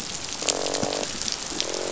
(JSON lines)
{"label": "biophony, croak", "recorder": "SoundTrap 500"}